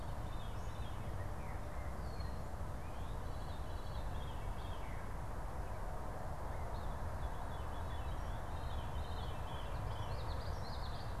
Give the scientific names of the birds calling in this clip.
Catharus fuscescens, Geothlypis trichas